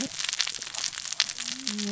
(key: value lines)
label: biophony, cascading saw
recorder: SoundTrap 600 or HydroMoth